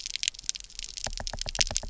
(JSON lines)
{"label": "biophony, knock", "recorder": "SoundTrap 300"}